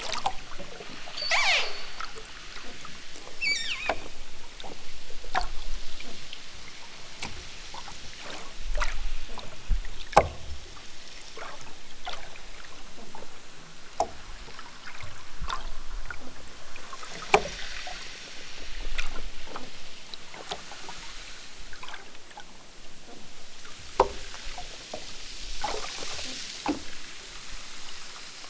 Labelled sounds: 1.1	2.0	killer whale, southern Alaska resident, 0.28 to 8.0 kHz
3.3	4.1	killer whale, southern Alaska resident, 0.60 to 8.0 kHz

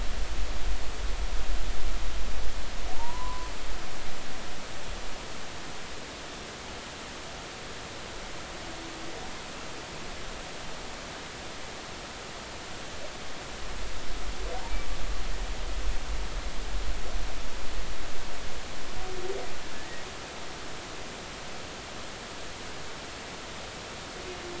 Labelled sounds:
3.0	3.5	humpback whale, 0.86 to 1.2 kHz

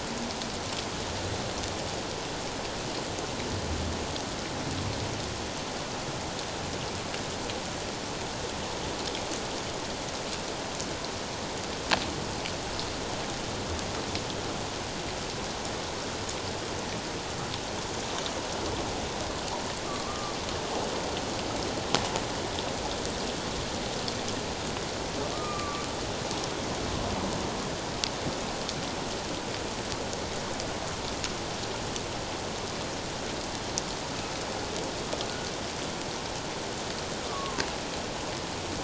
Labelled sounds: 19.8	20.4	humpback whale, 1.0 to 1.3 kHz
25.3	25.8	humpback whale, 1.1 to 1.3 kHz
37.3	37.6	humpback whale, 0.97 to 1.2 kHz

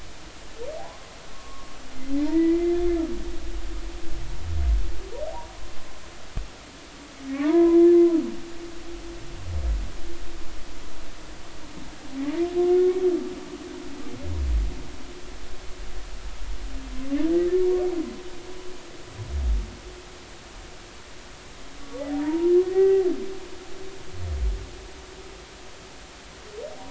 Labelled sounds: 0.8	1.7	humpback whale, 0.80 to 1.2 kHz
2.2	2.8	humpback whale, 0.86 to 2.1 kHz
7.4	7.8	humpback whale, 0.80 to 1.1 kHz
22.2	23.1	humpback whale, 0.80 to 2.0 kHz

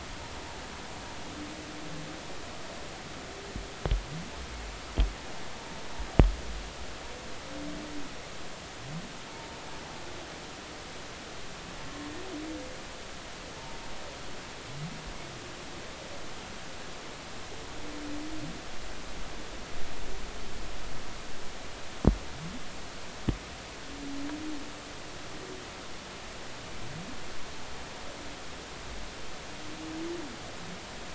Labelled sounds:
9.3	9.6	humpback whale, 0.86 to 0.96 kHz

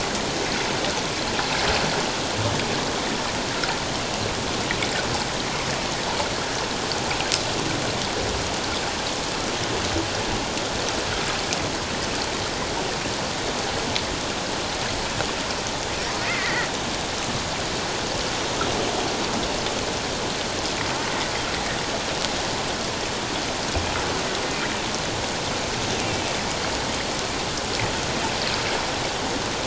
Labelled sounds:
16.2	16.7	killer whale, offshore, call OFF07, 1.8 to 2.2 kHz

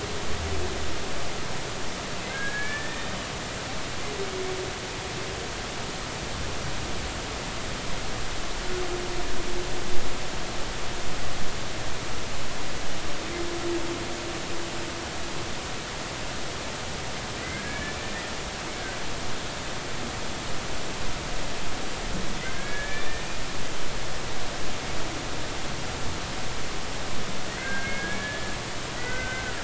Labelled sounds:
2.3	3.2	humpback whale, 1.5 to 2.4 kHz
17.5	18.0	humpback whale, 1.5 to 1.8 kHz
22.4	23.2	humpback whale, 1.5 to 2.4 kHz
27.6	29.6	humpback whale, 1.3 to 2.2 kHz

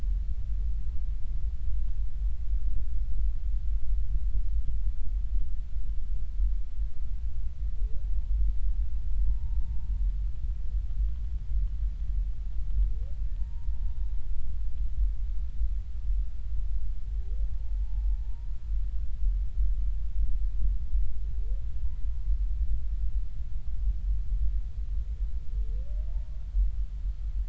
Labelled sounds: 9.3	9.6	humpback whale, 0.86 to 0.96 kHz
13.4	13.8	humpback whale, 0.90 to 0.99 kHz
17.5	18.5	humpback whale, 0.80 to 0.99 kHz

